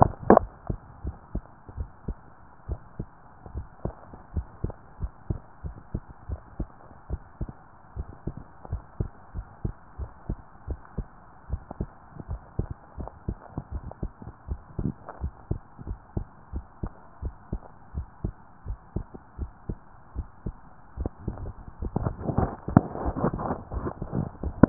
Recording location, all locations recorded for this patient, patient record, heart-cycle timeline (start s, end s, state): tricuspid valve (TV)
aortic valve (AV)+pulmonary valve (PV)+tricuspid valve (TV)+mitral valve (MV)
#Age: Adolescent
#Sex: Female
#Height: 145.0 cm
#Weight: 30.8 kg
#Pregnancy status: False
#Murmur: Absent
#Murmur locations: nan
#Most audible location: nan
#Systolic murmur timing: nan
#Systolic murmur shape: nan
#Systolic murmur grading: nan
#Systolic murmur pitch: nan
#Systolic murmur quality: nan
#Diastolic murmur timing: nan
#Diastolic murmur shape: nan
#Diastolic murmur grading: nan
#Diastolic murmur pitch: nan
#Diastolic murmur quality: nan
#Outcome: Normal
#Campaign: 2015 screening campaign
0.00	1.74	unannotated
1.74	1.91	S1
1.91	2.06	systole
2.06	2.19	S2
2.19	2.64	diastole
2.64	2.82	S1
2.82	3.00	systole
3.00	3.14	S2
3.14	3.50	diastole
3.50	3.66	S1
3.66	3.84	systole
3.84	3.98	S2
3.98	4.34	diastole
4.34	4.46	S1
4.46	4.62	systole
4.62	4.74	S2
4.74	4.96	diastole
4.96	5.10	S1
5.10	5.28	systole
5.28	5.42	S2
5.42	5.64	diastole
5.64	5.76	S1
5.76	5.92	systole
5.92	6.02	S2
6.02	6.30	diastole
6.30	6.40	S1
6.40	6.58	systole
6.58	6.72	S2
6.72	7.06	diastole
7.06	7.24	S1
7.24	7.40	systole
7.40	7.54	S2
7.54	7.90	diastole
7.90	8.06	S1
8.06	8.26	systole
8.26	8.36	S2
8.36	8.68	diastole
8.68	8.82	S1
8.82	8.98	systole
8.98	9.12	S2
9.12	9.36	diastole
9.36	9.46	S1
9.46	9.62	systole
9.62	9.76	S2
9.76	10.00	diastole
10.00	10.12	S1
10.12	10.30	systole
10.30	10.40	S2
10.40	10.68	diastole
10.68	10.78	S1
10.78	10.96	systole
10.96	11.10	S2
11.10	11.46	diastole
11.46	11.60	S1
11.60	11.78	systole
11.78	11.92	S2
11.92	12.26	diastole
12.26	12.40	S1
12.40	12.58	systole
12.58	12.68	S2
12.68	12.98	diastole
12.98	13.10	S1
13.10	13.26	systole
13.26	13.38	S2
13.38	13.70	diastole
13.70	13.84	S1
13.84	14.02	systole
14.02	14.12	S2
14.12	14.46	diastole
14.46	14.60	S1
14.60	14.77	systole
14.77	14.90	S2
14.90	15.20	diastole
15.20	15.34	S1
15.34	15.50	systole
15.50	15.62	S2
15.62	15.88	diastole
15.88	15.98	S1
15.98	16.16	systole
16.16	16.28	S2
16.28	16.54	diastole
16.54	16.64	S1
16.64	16.82	systole
16.82	16.94	S2
16.94	17.24	diastole
17.24	17.34	S1
17.34	17.52	systole
17.52	17.62	S2
17.62	17.94	diastole
17.94	18.08	S1
18.08	18.24	systole
18.24	18.36	S2
18.36	18.64	diastole
18.64	18.78	S1
18.78	18.94	systole
18.94	19.06	S2
19.06	19.36	diastole
19.36	19.50	S1
19.50	19.68	systole
19.68	19.80	S2
19.80	20.14	diastole
20.14	20.28	S1
20.28	20.46	systole
20.46	20.56	S2
20.56	24.69	unannotated